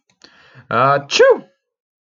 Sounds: Sneeze